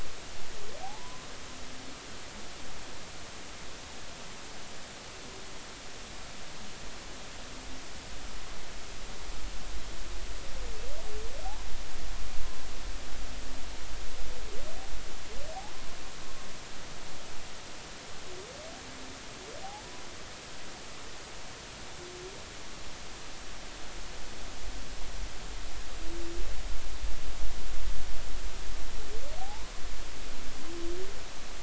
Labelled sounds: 0.8	1.2	humpback whale, 0.80 to 1.2 kHz
29.4	29.7	humpback whale, 0.80 to 1.1 kHz

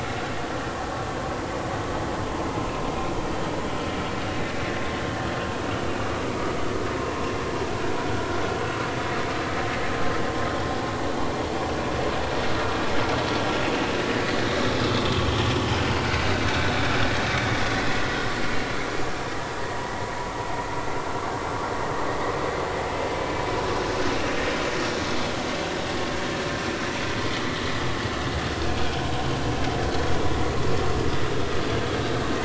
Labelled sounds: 15.1	15.8	vessel noise, 2.9 to 3.4 kHz

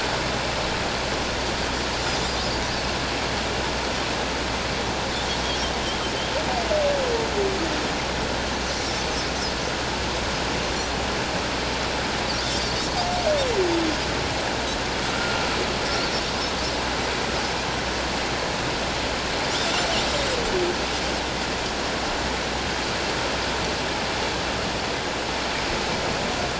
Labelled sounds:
15.1	15.5	humpback whale, 1.3 to 1.5 kHz

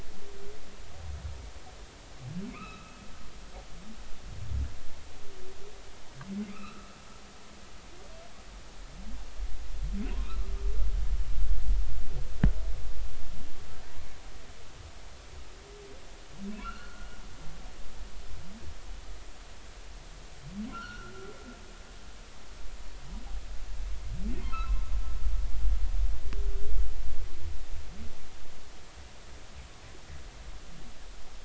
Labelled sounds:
2.5	3.0	humpback whale, 1.2 to 2.7 kHz
6.4	7.0	humpback whale, 1.2 to 2.8 kHz
16.5	17.1	humpback whale, 1.3 to 3.0 kHz
20.7	21.1	humpback whale, 1.3 to 3.2 kHz
24.5	24.8	humpback whale, 1.2 to 2.7 kHz

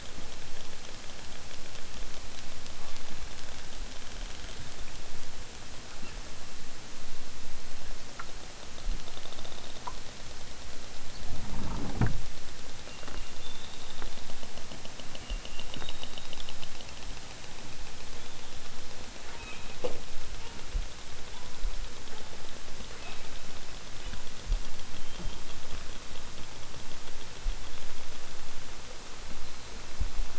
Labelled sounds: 5.8	6.2	killer whale, southern Alaska resident, 0.78 to 3.5 kHz
19.2	19.7	killer whale, southern Alaska resident, 0.51 to 4.1 kHz
20.3	20.7	killer whale, southern Alaska resident, 0.37 to 3.3 kHz
21.3	21.9	killer whale, southern Alaska resident, 0.55 to 1.8 kHz
22.8	23.3	killer whale, southern Alaska resident, 0.28 to 4.3 kHz

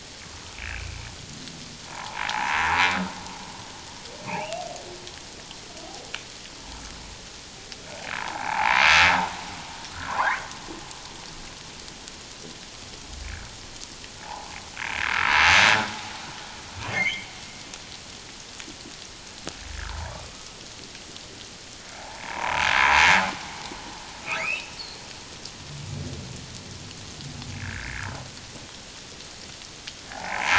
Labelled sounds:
0.5	1.0	humpback whale, 2.2 to 2.7 kHz
1.9	2.8	humpback whale, 0.78 to 1.2 kHz
4.3	4.6	humpback whale, 2.1 to 2.9 kHz
8.1	8.8	humpback whale, 0.78 to 1.1 kHz
14.2	15.1	humpback whale, 0.78 to 1.8 kHz
16.9	17.3	humpback whale, 2.0 to 2.4 kHz
19.9	20.1	humpback whale, 0.78 to 1.2 kHz
22.0	22.7	humpback whale, 0.78 to 1.1 kHz
24.2	25.0	humpback whale, 1.2 to 4.7 kHz
27.6	28.1	humpback whale, 1.3 to 1.9 kHz
30.1	30.5	humpback whale, 0.78 to 1.1 kHz

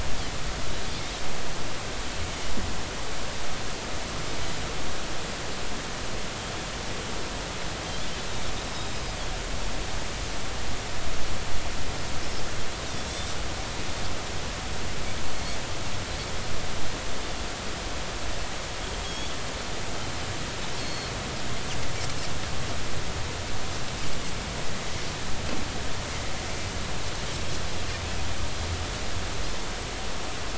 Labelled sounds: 12.8	13.1	Pacific white-sided dolphin, 3.4 to 3.8 kHz
19.0	19.3	Pacific white-sided dolphin, 3.2 to 3.5 kHz
21.8	22.1	Pacific white-sided dolphin, 4.2 to 4.4 kHz

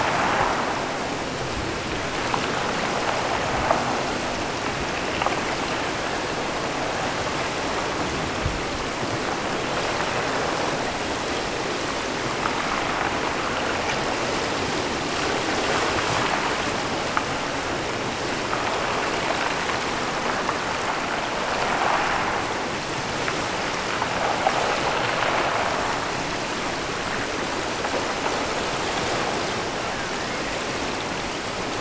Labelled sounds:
29.8	30.6	killer whale, offshore, 1.0 to 2.5 kHz

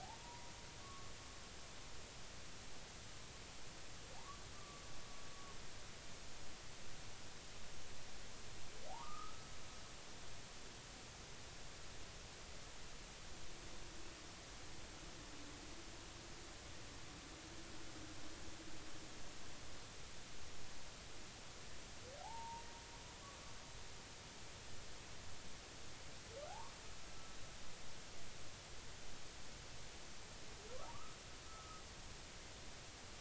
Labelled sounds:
0.0	1.1	humpback whale, 0.80 to 1.2 kHz
4.5	4.8	humpback whale, 1.1 to 1.2 kHz
8.9	9.4	humpback whale, 0.80 to 1.4 kHz
22.2	22.6	humpback whale, 0.80 to 0.99 kHz
26.5	26.7	humpback whale, 0.80 to 1.2 kHz
31.5	31.8	humpback whale, 1.2 to 1.4 kHz

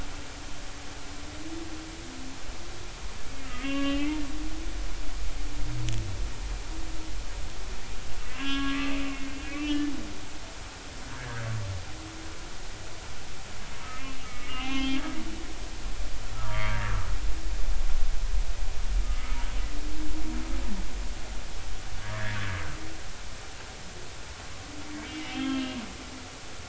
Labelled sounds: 3.4	4.2	humpback whale, 1.1 to 3.4 kHz
8.3	9.9	humpback whale, 0.99 to 3.4 kHz
11.2	11.4	humpback whale, 1.4 to 1.8 kHz
14.0	15.0	humpback whale, 1.2 to 3.5 kHz
16.4	16.9	humpback whale, 1.1 to 2.3 kHz
19.0	19.4	humpback whale, 1.2 to 2.3 kHz
22.0	22.4	humpback whale, 1.5 to 2.0 kHz
25.1	25.8	humpback whale, 2.6 to 3.3 kHz

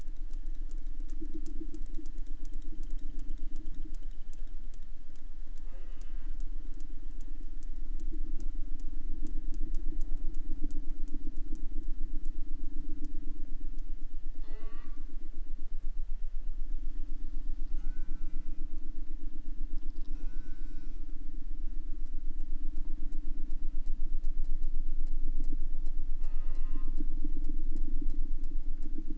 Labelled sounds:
5.6	6.5	killer whale, southern resident, J pod, call S04, 0.38 to 8.0 kHz
14.3	15.4	killer whale, southern resident, J pod, call S04, 0 to 8.0 kHz
17.7	18.6	killer whale, southern resident, J pod, call S04, 0.42 to 8.0 kHz
19.7	21.2	killer whale, southern resident, J pod, call S04, 0.40 to 8.0 kHz
26.1	27.3	killer whale, southern resident, J pod, call S04, 0.44 to 8.0 kHz

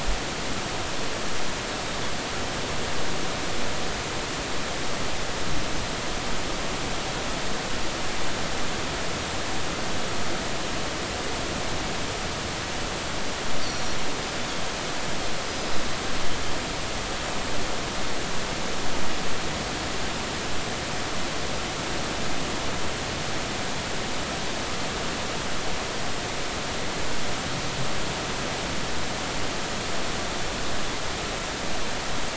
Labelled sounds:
13.6	14.0	Pacific white-sided dolphin, 4.2 to 6.0 kHz
15.5	15.8	Pacific white-sided dolphin, 4.9 to 5.1 kHz

